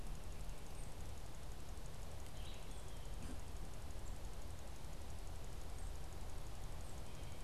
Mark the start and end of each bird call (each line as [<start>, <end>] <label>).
[0.70, 1.00] unidentified bird
[2.10, 2.90] Red-eyed Vireo (Vireo olivaceus)
[5.40, 7.20] unidentified bird